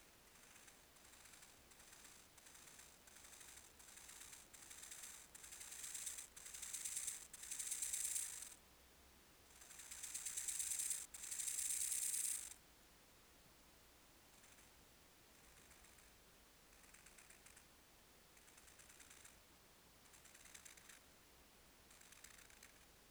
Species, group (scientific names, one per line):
Chorthippus biguttulus
Orthoptera